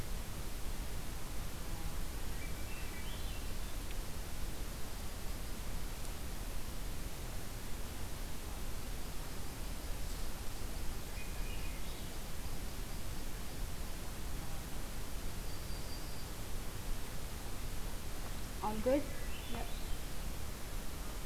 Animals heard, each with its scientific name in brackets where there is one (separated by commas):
Yellow-rumped Warbler (Setophaga coronata), Swainson's Thrush (Catharus ustulatus)